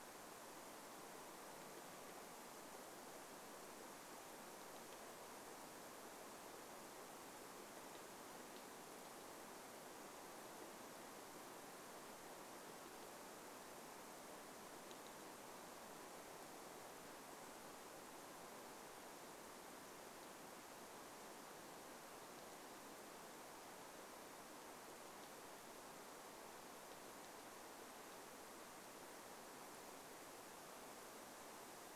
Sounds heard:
woodpecker drumming

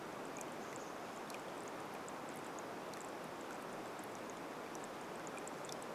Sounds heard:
Chestnut-backed Chickadee call
rain

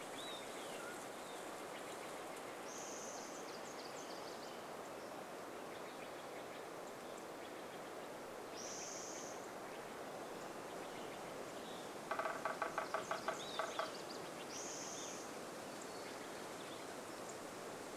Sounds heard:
Spotted Towhee song
Steller's Jay call
unidentified sound
woodpecker drumming
Nashville Warbler song
Olive-sided Flycatcher song
unidentified bird chip note
Mountain Quail call

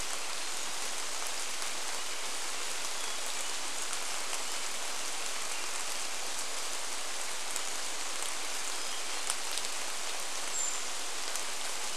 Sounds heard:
Brown Creeper call
rain
Hermit Thrush song

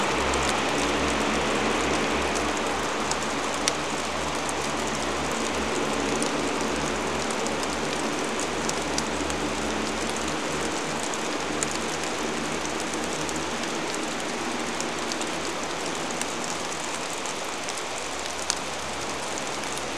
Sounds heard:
vehicle engine
rain

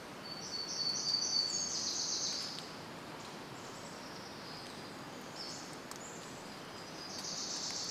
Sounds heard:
Wilson's Warbler song
Pacific-slope Flycatcher call
warbler song
Pacific Wren song

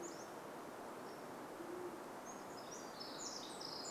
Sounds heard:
Pacific-slope Flycatcher song
Band-tailed Pigeon call
Pacific Wren song

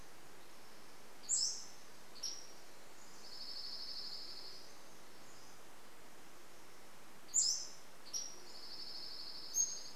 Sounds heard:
Band-tailed Pigeon call
Dark-eyed Junco song
Pacific Wren song
Pacific-slope Flycatcher song

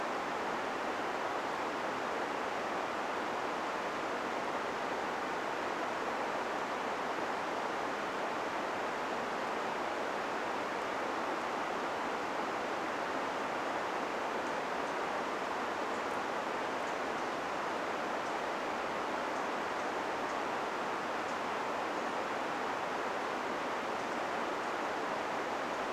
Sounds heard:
unidentified bird chip note

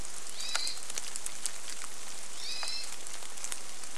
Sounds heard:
rain
Hermit Thrush call

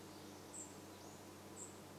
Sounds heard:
unidentified bird chip note

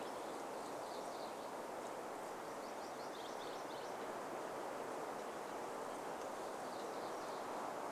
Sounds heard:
Purple Finch song
MacGillivray's Warbler song

